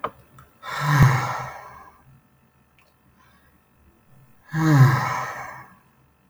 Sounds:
Sigh